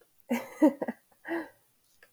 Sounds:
Laughter